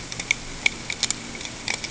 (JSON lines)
{"label": "ambient", "recorder": "HydroMoth"}